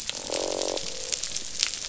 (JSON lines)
{"label": "biophony, croak", "recorder": "SoundTrap 500"}